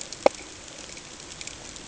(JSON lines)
{"label": "ambient", "recorder": "HydroMoth"}